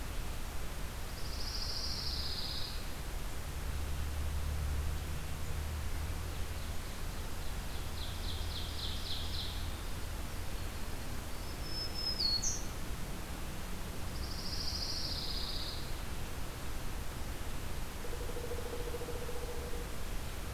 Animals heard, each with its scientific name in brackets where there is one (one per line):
Pileated Woodpecker (Dryocopus pileatus)
Pine Warbler (Setophaga pinus)
Ovenbird (Seiurus aurocapilla)
Black-throated Green Warbler (Setophaga virens)